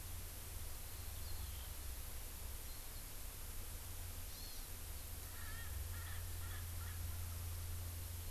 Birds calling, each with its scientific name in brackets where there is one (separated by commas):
Erckel's Francolin (Pternistis erckelii), Eurasian Skylark (Alauda arvensis), Hawaii Amakihi (Chlorodrepanis virens)